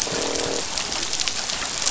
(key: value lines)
label: biophony, croak
recorder: SoundTrap 500